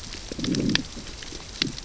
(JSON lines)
{"label": "biophony, growl", "recorder": "SoundTrap 600 or HydroMoth"}